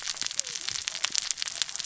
{"label": "biophony, cascading saw", "recorder": "SoundTrap 600 or HydroMoth"}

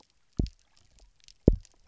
{"label": "biophony, double pulse", "recorder": "SoundTrap 300"}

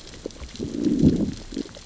{"label": "biophony, growl", "recorder": "SoundTrap 600 or HydroMoth"}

